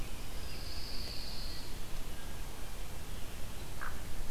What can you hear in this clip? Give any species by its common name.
Pine Warbler, Hooded Merganser